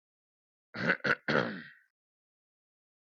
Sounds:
Throat clearing